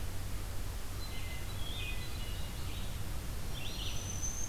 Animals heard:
Black-throated Green Warbler (Setophaga virens)
Hermit Thrush (Catharus guttatus)
Red-eyed Vireo (Vireo olivaceus)

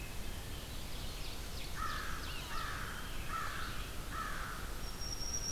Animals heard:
Red-eyed Vireo (Vireo olivaceus)
Ovenbird (Seiurus aurocapilla)
Black-throated Green Warbler (Setophaga virens)
Wood Thrush (Hylocichla mustelina)
American Crow (Corvus brachyrhynchos)

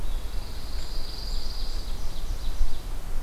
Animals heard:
Pine Warbler (Setophaga pinus)
Ovenbird (Seiurus aurocapilla)
Eastern Wood-Pewee (Contopus virens)

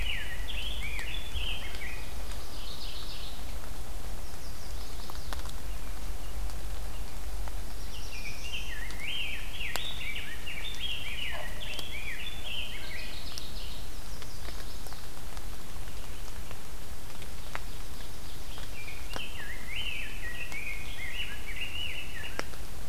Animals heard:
Chestnut-sided Warbler (Setophaga pensylvanica)
Ovenbird (Seiurus aurocapilla)
Rose-breasted Grosbeak (Pheucticus ludovicianus)
Mourning Warbler (Geothlypis philadelphia)
Black-throated Blue Warbler (Setophaga caerulescens)

